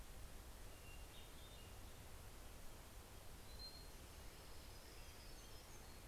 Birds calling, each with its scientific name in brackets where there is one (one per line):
Hermit Thrush (Catharus guttatus)
Hermit Warbler (Setophaga occidentalis)
Orange-crowned Warbler (Leiothlypis celata)